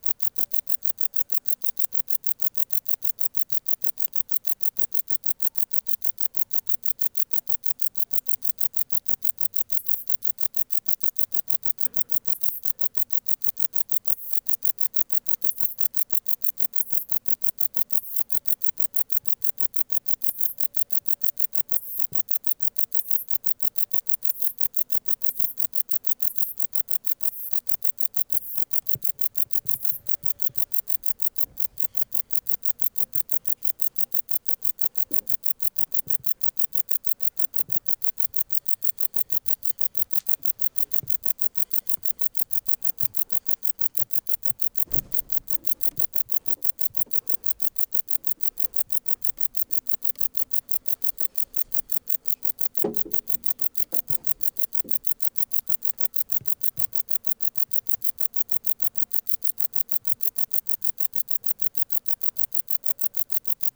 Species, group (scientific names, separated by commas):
Metrioptera brachyptera, Orthoptera